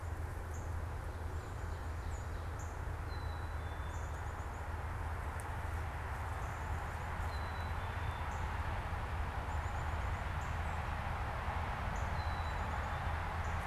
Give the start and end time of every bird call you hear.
[0.00, 5.79] Northern Cardinal (Cardinalis cardinalis)
[3.09, 3.99] Black-capped Chickadee (Poecile atricapillus)
[7.19, 8.39] Black-capped Chickadee (Poecile atricapillus)
[8.09, 13.67] Northern Cardinal (Cardinalis cardinalis)
[12.09, 13.19] Black-capped Chickadee (Poecile atricapillus)

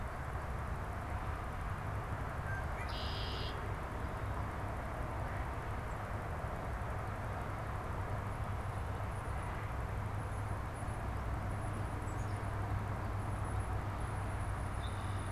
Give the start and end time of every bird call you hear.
[2.30, 3.90] Red-winged Blackbird (Agelaius phoeniceus)
[8.90, 15.32] Tufted Titmouse (Baeolophus bicolor)
[11.90, 13.00] Black-capped Chickadee (Poecile atricapillus)
[14.70, 15.32] Red-winged Blackbird (Agelaius phoeniceus)

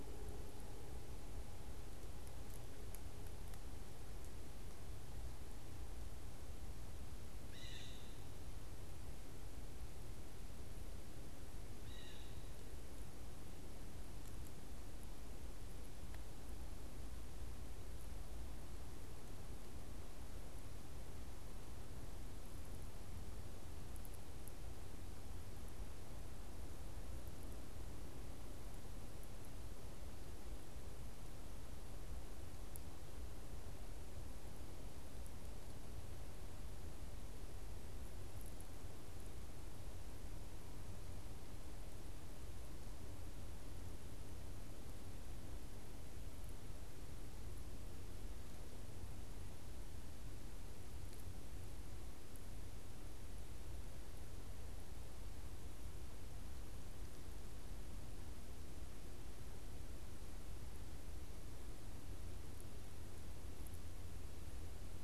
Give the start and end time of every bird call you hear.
[7.08, 12.48] Blue Jay (Cyanocitta cristata)

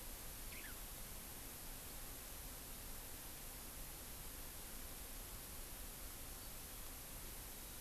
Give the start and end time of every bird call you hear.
[0.40, 0.80] House Finch (Haemorhous mexicanus)

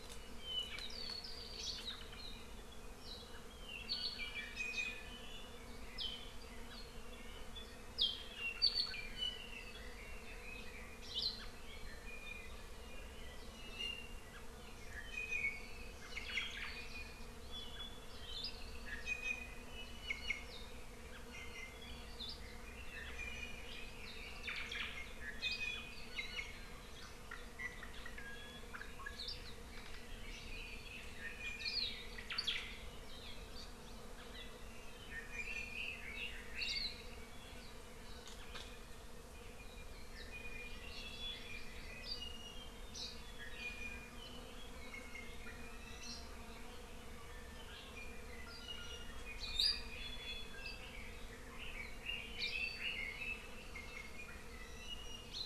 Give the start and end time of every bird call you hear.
[4.55, 5.05] Iiwi (Drepanis coccinea)
[9.15, 9.45] Iiwi (Drepanis coccinea)
[11.05, 11.35] Hawaii Akepa (Loxops coccineus)
[11.65, 12.65] Iiwi (Drepanis coccinea)
[13.55, 14.25] Iiwi (Drepanis coccinea)
[15.05, 15.65] Iiwi (Drepanis coccinea)
[16.15, 16.65] Omao (Myadestes obscurus)
[19.05, 19.65] Iiwi (Drepanis coccinea)
[20.05, 20.45] Iiwi (Drepanis coccinea)
[21.25, 21.85] Iiwi (Drepanis coccinea)
[23.15, 23.65] Iiwi (Drepanis coccinea)
[24.45, 24.95] Omao (Myadestes obscurus)
[25.35, 26.55] Iiwi (Drepanis coccinea)
[27.55, 28.65] Iiwi (Drepanis coccinea)
[31.15, 31.95] Iiwi (Drepanis coccinea)
[31.55, 31.95] Hawaii Akepa (Loxops coccineus)
[32.15, 32.65] Omao (Myadestes obscurus)
[35.05, 36.95] Red-billed Leiothrix (Leiothrix lutea)
[35.25, 35.75] Iiwi (Drepanis coccinea)
[36.65, 36.95] Hawaii Akepa (Loxops coccineus)
[40.45, 41.95] Hawaii Amakihi (Chlorodrepanis virens)
[42.15, 42.75] Iiwi (Drepanis coccinea)
[43.55, 44.25] Iiwi (Drepanis coccinea)
[44.75, 45.35] Iiwi (Drepanis coccinea)
[48.45, 49.05] Iiwi (Drepanis coccinea)
[49.95, 50.65] Iiwi (Drepanis coccinea)
[51.55, 53.55] Red-billed Leiothrix (Leiothrix lutea)
[53.75, 54.25] Iiwi (Drepanis coccinea)

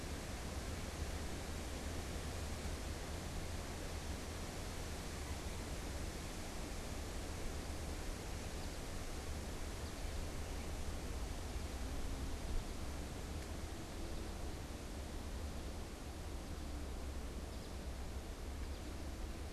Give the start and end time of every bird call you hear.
[7.52, 19.53] American Goldfinch (Spinus tristis)

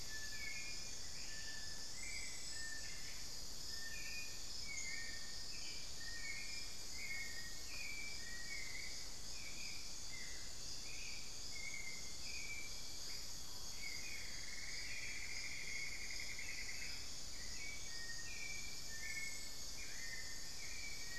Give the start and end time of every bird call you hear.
[0.00, 8.88] Little Tinamou (Crypturellus soui)
[0.00, 21.18] Hauxwell's Thrush (Turdus hauxwelli)
[0.00, 21.18] unidentified bird
[13.98, 17.18] Cinnamon-throated Woodcreeper (Dendrexetastes rufigula)
[17.68, 21.18] Little Tinamou (Crypturellus soui)

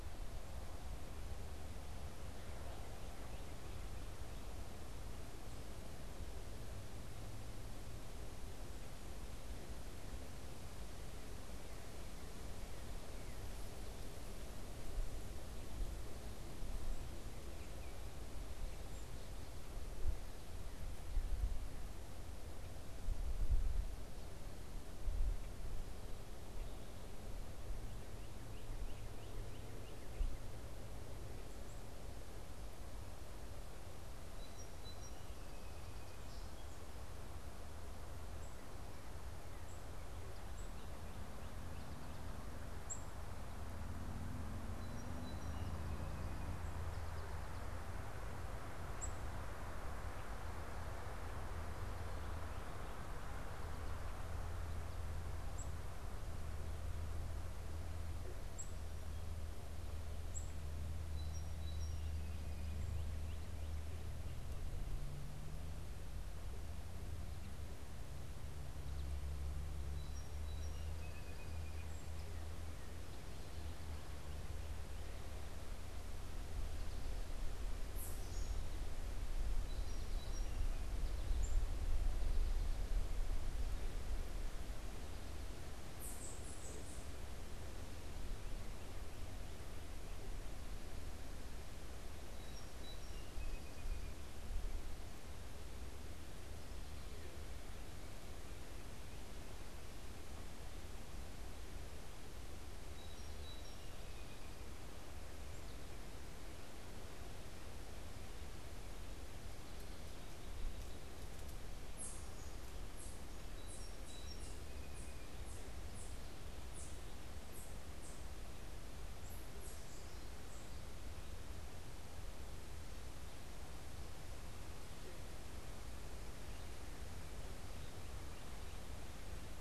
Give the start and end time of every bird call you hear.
[27.78, 30.48] Northern Cardinal (Cardinalis cardinalis)
[34.28, 36.88] Song Sparrow (Melospiza melodia)
[38.28, 43.28] Black-capped Chickadee (Poecile atricapillus)
[44.58, 47.38] Song Sparrow (Melospiza melodia)
[48.98, 49.28] Black-capped Chickadee (Poecile atricapillus)
[55.18, 60.68] Black-capped Chickadee (Poecile atricapillus)
[60.98, 63.18] Song Sparrow (Melospiza melodia)
[69.68, 72.18] Song Sparrow (Melospiza melodia)
[79.48, 81.08] Song Sparrow (Melospiza melodia)
[80.58, 83.38] American Goldfinch (Spinus tristis)
[81.28, 81.58] Black-capped Chickadee (Poecile atricapillus)
[92.18, 94.18] Song Sparrow (Melospiza melodia)
[102.88, 104.88] Song Sparrow (Melospiza melodia)
[113.18, 115.58] Song Sparrow (Melospiza melodia)

